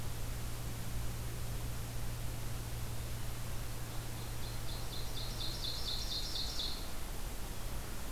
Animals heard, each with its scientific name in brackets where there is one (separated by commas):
Ovenbird (Seiurus aurocapilla)